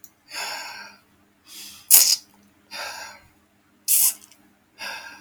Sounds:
Sigh